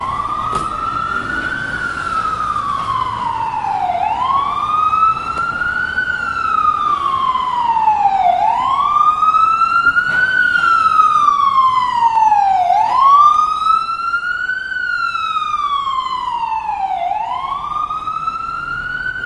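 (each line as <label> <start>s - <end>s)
An ambulance siren sounds loudly with a repeating pattern on a busy street. 0.0s - 19.3s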